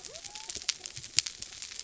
{"label": "biophony", "recorder": "SoundTrap 300"}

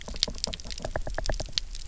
{"label": "biophony, knock", "recorder": "SoundTrap 300"}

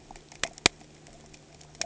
{"label": "anthrophony, boat engine", "recorder": "HydroMoth"}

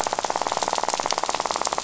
{"label": "biophony, rattle", "recorder": "SoundTrap 500"}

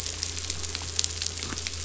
{"label": "anthrophony, boat engine", "recorder": "SoundTrap 500"}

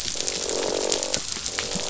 {"label": "biophony, croak", "recorder": "SoundTrap 500"}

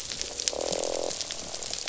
{"label": "biophony, croak", "recorder": "SoundTrap 500"}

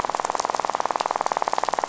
{"label": "biophony, rattle", "recorder": "SoundTrap 500"}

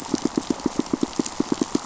{"label": "biophony, pulse", "recorder": "SoundTrap 500"}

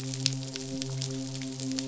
{"label": "biophony, midshipman", "recorder": "SoundTrap 500"}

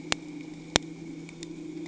{"label": "anthrophony, boat engine", "recorder": "HydroMoth"}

